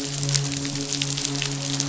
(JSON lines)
{"label": "biophony, midshipman", "recorder": "SoundTrap 500"}